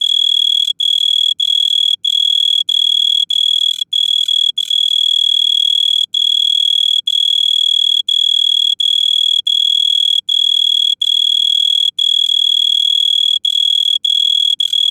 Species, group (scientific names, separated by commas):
Oecanthus pellucens, Orthoptera